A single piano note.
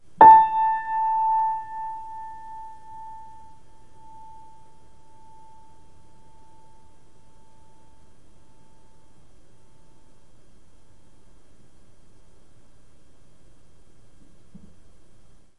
0.2s 2.4s

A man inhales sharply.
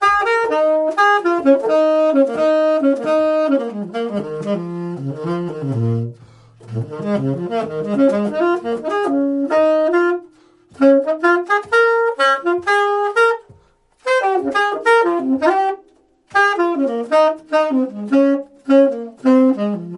6.2s 6.6s, 10.3s 10.8s, 13.5s 14.1s, 15.9s 16.4s

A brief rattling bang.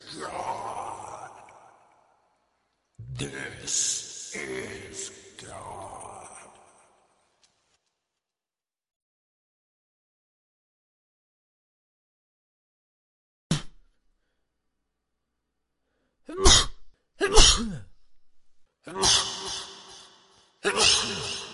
13.4s 13.7s

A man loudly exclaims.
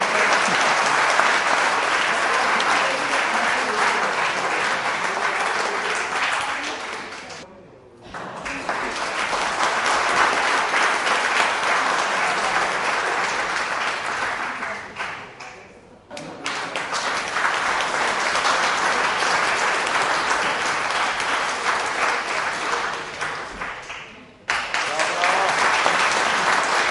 24.9s 25.6s

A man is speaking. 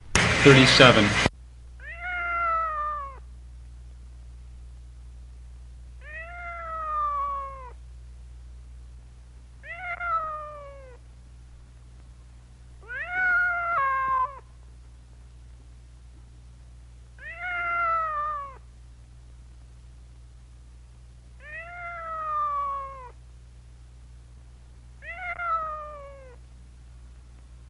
0.1s 1.3s

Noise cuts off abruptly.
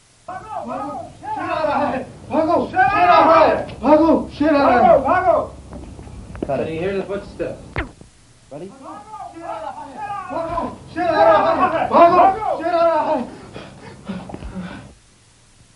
7.7s 7.9s

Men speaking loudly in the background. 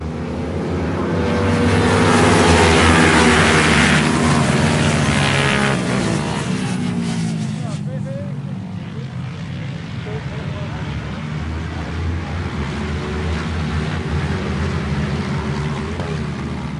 7.4s 12.0s

